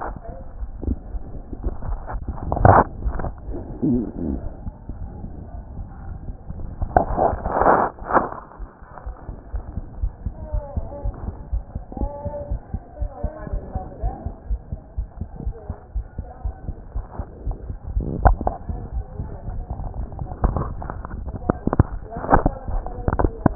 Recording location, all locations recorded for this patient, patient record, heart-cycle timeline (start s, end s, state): aortic valve (AV)
aortic valve (AV)+pulmonary valve (PV)+tricuspid valve (TV)+mitral valve (MV)
#Age: Child
#Sex: Male
#Height: nan
#Weight: nan
#Pregnancy status: False
#Murmur: Absent
#Murmur locations: nan
#Most audible location: nan
#Systolic murmur timing: nan
#Systolic murmur shape: nan
#Systolic murmur grading: nan
#Systolic murmur pitch: nan
#Systolic murmur quality: nan
#Diastolic murmur timing: nan
#Diastolic murmur shape: nan
#Diastolic murmur grading: nan
#Diastolic murmur pitch: nan
#Diastolic murmur quality: nan
#Outcome: Abnormal
#Campaign: 2015 screening campaign
0.00	10.74	unannotated
10.74	10.86	S2
10.86	11.02	diastole
11.02	11.16	S1
11.16	11.22	systole
11.22	11.36	S2
11.36	11.50	diastole
11.50	11.64	S1
11.64	11.74	systole
11.74	11.82	S2
11.82	11.98	diastole
11.98	12.10	S1
12.10	12.22	systole
12.22	12.34	S2
12.34	12.50	diastole
12.50	12.60	S1
12.60	12.72	systole
12.72	12.82	S2
12.82	13.00	diastole
13.00	13.10	S1
13.10	13.20	systole
13.20	13.34	S2
13.34	13.52	diastole
13.52	13.64	S1
13.64	13.74	systole
13.74	13.84	S2
13.84	14.02	diastole
14.02	14.14	S1
14.14	14.24	systole
14.24	14.34	S2
14.34	14.48	diastole
14.48	14.60	S1
14.60	14.70	systole
14.70	14.80	S2
14.80	14.96	diastole
14.96	15.08	S1
15.08	15.18	systole
15.18	15.28	S2
15.28	15.44	diastole
15.44	15.54	S1
15.54	15.68	systole
15.68	15.76	S2
15.76	15.94	diastole
15.94	16.06	S1
16.06	16.18	systole
16.18	16.28	S2
16.28	16.44	diastole
16.44	16.56	S1
16.56	16.68	systole
16.68	16.76	S2
16.76	16.94	diastole
16.94	17.06	S1
17.06	17.18	systole
17.18	17.28	S2
17.28	17.44	diastole
17.44	17.56	S1
17.56	17.64	systole
17.64	17.76	S2
17.76	17.91	diastole
17.91	23.55	unannotated